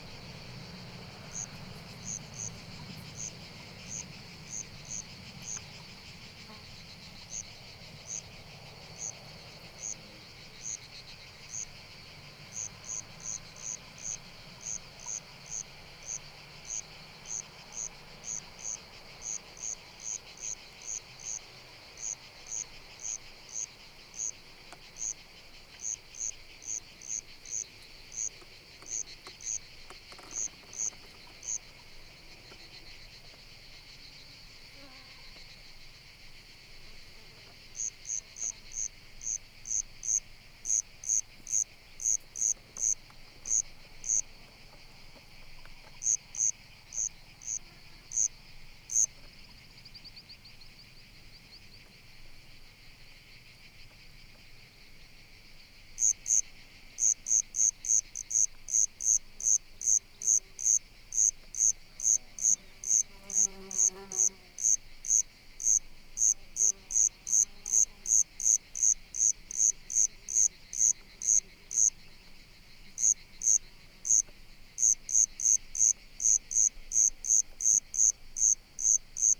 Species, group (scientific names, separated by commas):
Eumodicogryllus bordigalensis, Orthoptera